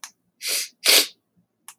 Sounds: Sniff